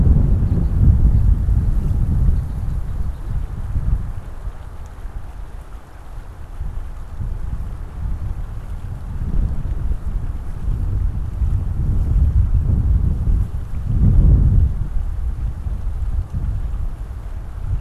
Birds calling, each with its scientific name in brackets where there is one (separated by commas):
House Finch (Haemorhous mexicanus)